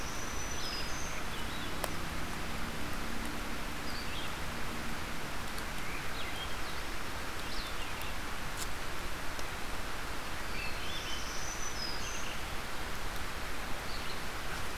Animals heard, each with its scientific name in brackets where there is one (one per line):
Red-eyed Vireo (Vireo olivaceus)
Black-throated Blue Warbler (Setophaga caerulescens)
Black-throated Green Warbler (Setophaga virens)
Swainson's Thrush (Catharus ustulatus)